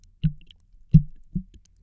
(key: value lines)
label: biophony, double pulse
recorder: SoundTrap 300